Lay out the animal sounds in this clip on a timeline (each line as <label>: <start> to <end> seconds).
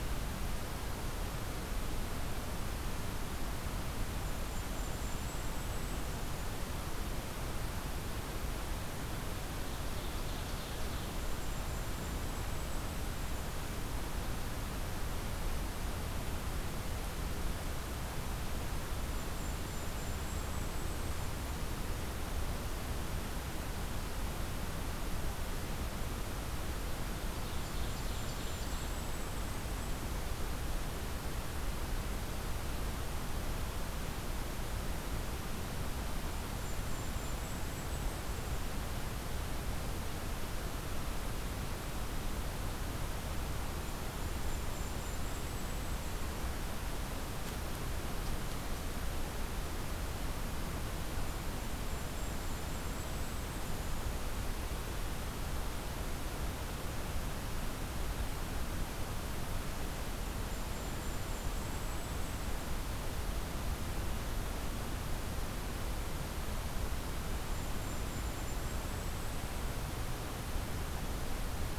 Golden-crowned Kinglet (Regulus satrapa): 3.9 to 6.6 seconds
Ovenbird (Seiurus aurocapilla): 8.9 to 11.2 seconds
Golden-crowned Kinglet (Regulus satrapa): 11.1 to 14.0 seconds
Golden-crowned Kinglet (Regulus satrapa): 18.8 to 21.9 seconds
Ovenbird (Seiurus aurocapilla): 27.1 to 29.2 seconds
Golden-crowned Kinglet (Regulus satrapa): 27.4 to 30.2 seconds
Golden-crowned Kinglet (Regulus satrapa): 36.1 to 38.8 seconds
Golden-crowned Kinglet (Regulus satrapa): 43.5 to 46.4 seconds
Golden-crowned Kinglet (Regulus satrapa): 51.1 to 54.1 seconds
Golden-crowned Kinglet (Regulus satrapa): 60.2 to 62.6 seconds
Golden-crowned Kinglet (Regulus satrapa): 66.9 to 69.9 seconds